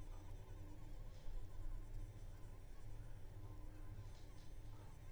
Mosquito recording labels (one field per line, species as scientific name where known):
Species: Anopheles arabiensis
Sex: female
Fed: unfed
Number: one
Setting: cup